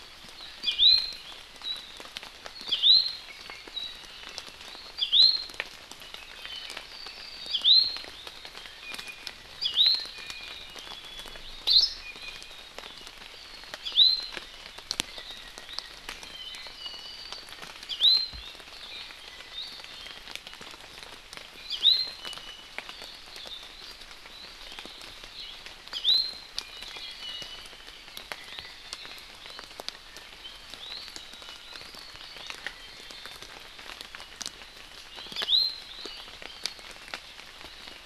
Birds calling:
Iiwi (Drepanis coccinea), Apapane (Himatione sanguinea)

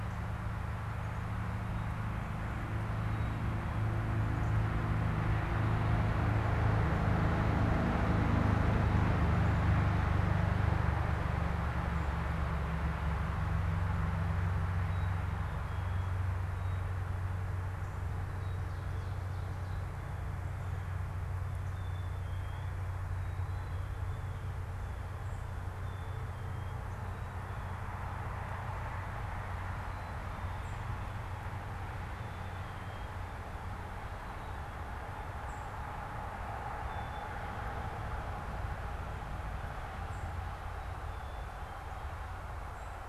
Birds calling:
Northern Cardinal (Cardinalis cardinalis), Blue Jay (Cyanocitta cristata), unidentified bird, Black-capped Chickadee (Poecile atricapillus)

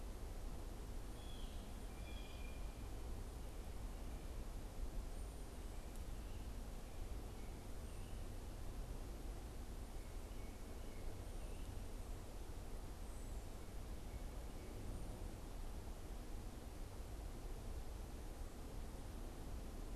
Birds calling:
Blue Jay (Cyanocitta cristata)

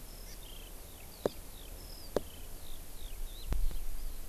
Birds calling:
Eurasian Skylark (Alauda arvensis), Hawaii Amakihi (Chlorodrepanis virens)

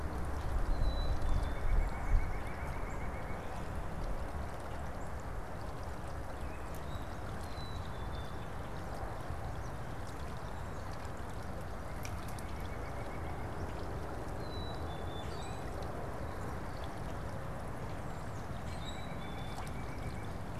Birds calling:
Common Grackle (Quiscalus quiscula), Black-capped Chickadee (Poecile atricapillus), White-breasted Nuthatch (Sitta carolinensis)

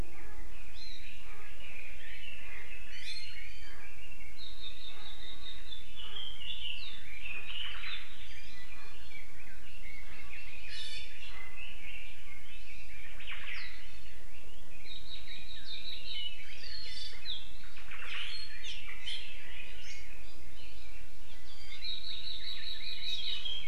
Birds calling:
Hawaii Akepa (Loxops coccineus), Hawaii Amakihi (Chlorodrepanis virens), Omao (Myadestes obscurus), Iiwi (Drepanis coccinea), Red-billed Leiothrix (Leiothrix lutea)

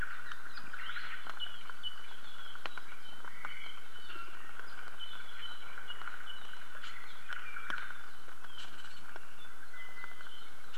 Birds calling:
Apapane (Himatione sanguinea), Red-billed Leiothrix (Leiothrix lutea)

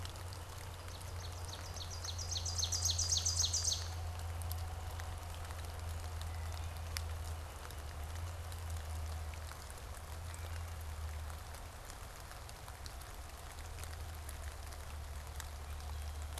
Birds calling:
Ovenbird (Seiurus aurocapilla), Wood Thrush (Hylocichla mustelina)

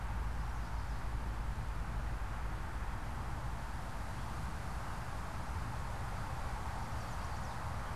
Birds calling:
Chestnut-sided Warbler (Setophaga pensylvanica)

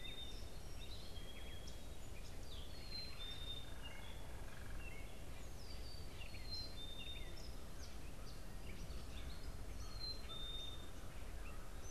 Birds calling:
Song Sparrow (Melospiza melodia), American Crow (Corvus brachyrhynchos), Gray Catbird (Dumetella carolinensis), Black-capped Chickadee (Poecile atricapillus)

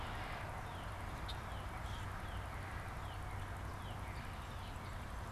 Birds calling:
Red-winged Blackbird (Agelaius phoeniceus), Red-bellied Woodpecker (Melanerpes carolinus), Common Grackle (Quiscalus quiscula), Northern Cardinal (Cardinalis cardinalis)

